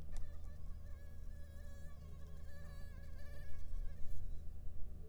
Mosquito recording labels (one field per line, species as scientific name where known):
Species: Anopheles arabiensis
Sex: female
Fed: unfed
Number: one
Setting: cup